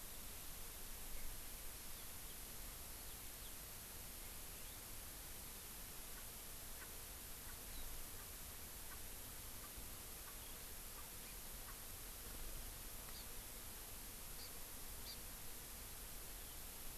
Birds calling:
Hawaii Amakihi (Chlorodrepanis virens)

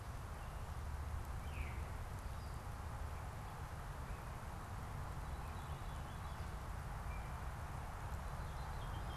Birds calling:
Veery (Catharus fuscescens)

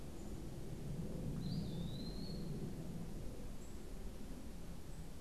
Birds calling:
Eastern Wood-Pewee (Contopus virens)

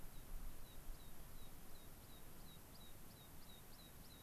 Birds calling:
American Pipit (Anthus rubescens)

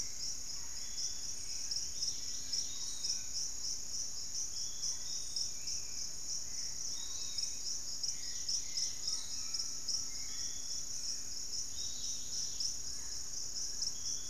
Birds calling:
Barred Forest-Falcon (Micrastur ruficollis)
Dusky-capped Greenlet (Pachysylvia hypoxantha)
Piratic Flycatcher (Legatus leucophaius)
Fasciated Antshrike (Cymbilaimus lineatus)
Hauxwell's Thrush (Turdus hauxwelli)

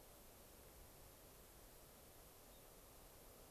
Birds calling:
unidentified bird

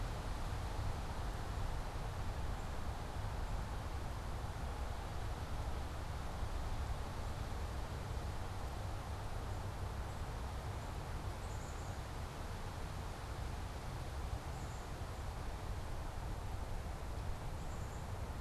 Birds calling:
Black-capped Chickadee (Poecile atricapillus)

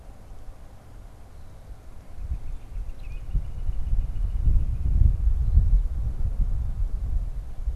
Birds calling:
Northern Flicker (Colaptes auratus)

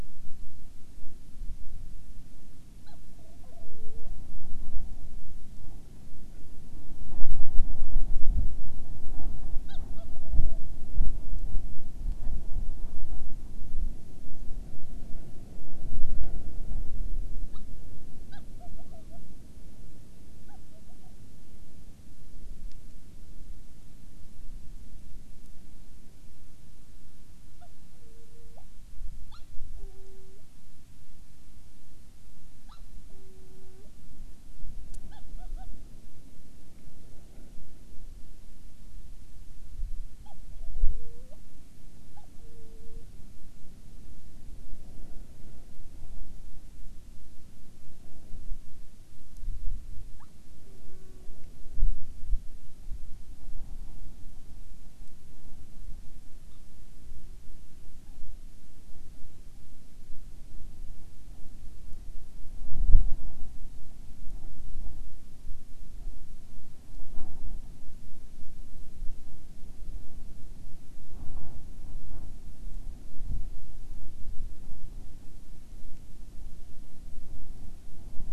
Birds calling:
Hawaiian Petrel (Pterodroma sandwichensis)

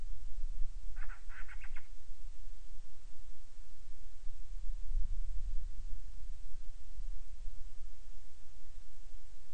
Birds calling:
Band-rumped Storm-Petrel (Hydrobates castro)

